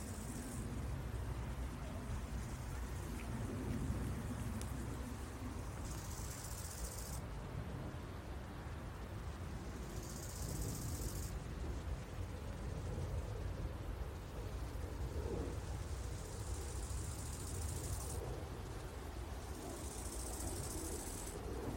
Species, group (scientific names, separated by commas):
Chorthippus biguttulus, Orthoptera